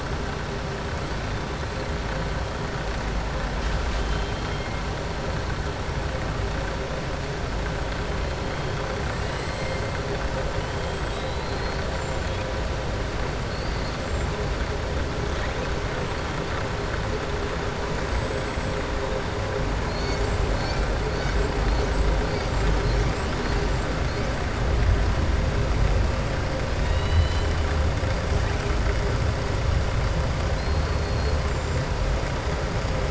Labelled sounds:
1.0	1.8	killer whale, southern resident, 7.7 to 8.0 kHz
9.2	9.8	killer whale, southern resident, 1.8 to 5.2 kHz
11.0	12.3	killer whale, southern resident, 3.2 to 7.4 kHz
13.4	14.0	killer whale, southern resident, 4.1 to 4.8 kHz
26.8	27.5	killer whale, southern resident, 1.9 to 4.1 kHz
30.5	31.4	killer whale, southern resident, 4.1 to 4.5 kHz

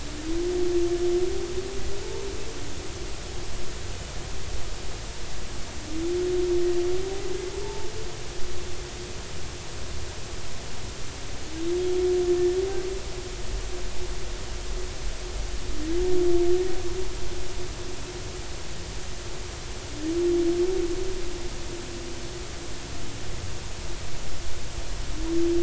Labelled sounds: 7.6	7.9	humpback whale, 0.83 to 0.96 kHz

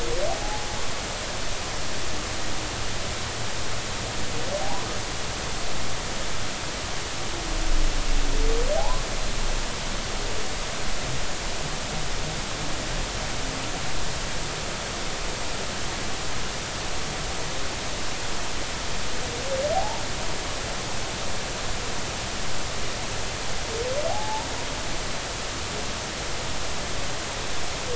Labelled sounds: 0.3	0.7	humpback whale, 0.80 to 0.90 kHz
4.6	4.9	humpback whale, 0.80 to 1.2 kHz
8.8	9.0	humpback whale, 0.80 to 1.2 kHz
19.7	20.0	humpback whale, 0.80 to 0.99 kHz
24.1	24.5	humpback whale, 0.80 to 0.99 kHz

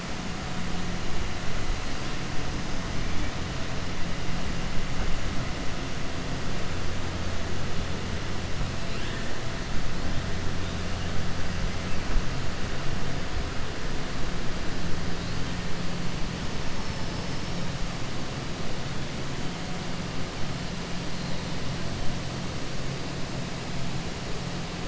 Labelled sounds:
16.7	17.6	killer whale, 4.4 to 6.4 kHz

